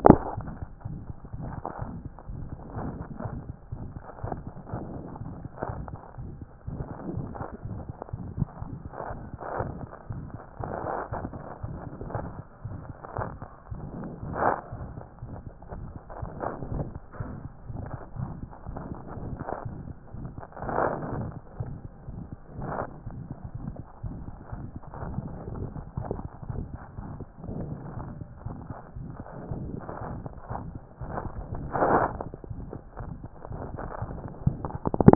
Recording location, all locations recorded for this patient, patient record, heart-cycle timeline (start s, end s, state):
mitral valve (MV)
aortic valve (AV)+mitral valve (MV)
#Age: Child
#Sex: Male
#Height: 86.0 cm
#Weight: 9.9 kg
#Pregnancy status: False
#Murmur: Present
#Murmur locations: aortic valve (AV)+mitral valve (MV)
#Most audible location: aortic valve (AV)
#Systolic murmur timing: Holosystolic
#Systolic murmur shape: Plateau
#Systolic murmur grading: I/VI
#Systolic murmur pitch: High
#Systolic murmur quality: Harsh
#Diastolic murmur timing: nan
#Diastolic murmur shape: nan
#Diastolic murmur grading: nan
#Diastolic murmur pitch: nan
#Diastolic murmur quality: nan
#Outcome: Abnormal
#Campaign: 2014 screening campaign
0.00	0.38	unannotated
0.38	0.50	S1
0.50	0.60	systole
0.60	0.66	S2
0.66	0.85	diastole
0.85	0.97	S1
0.97	1.09	systole
1.09	1.15	S2
1.15	1.34	diastole
1.34	1.46	S1
1.46	1.57	systole
1.57	1.63	S2
1.63	1.82	diastole
1.82	1.93	S1
1.93	2.05	systole
2.05	2.10	S2
2.10	2.30	diastole
2.30	2.41	S1
2.41	2.52	systole
2.52	2.57	S2
2.57	2.76	diastole
2.76	2.87	S1
2.87	3.00	systole
3.00	3.05	S2
3.05	3.24	diastole
3.24	35.15	unannotated